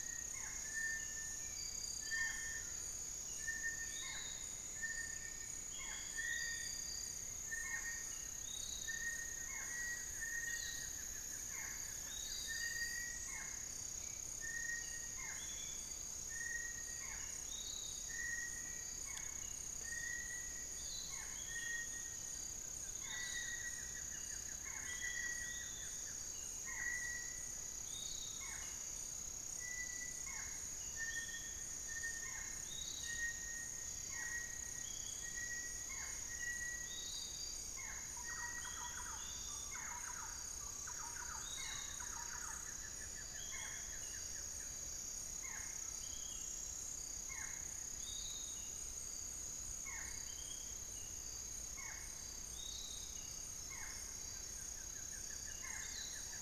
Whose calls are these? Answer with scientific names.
Crypturellus soui, Micrastur ruficollis, Legatus leucophaius, Turdus hauxwelli, Xiphorhynchus guttatus, Crypturellus cinereus, Campylorhynchus turdinus